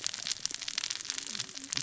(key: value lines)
label: biophony, cascading saw
recorder: SoundTrap 600 or HydroMoth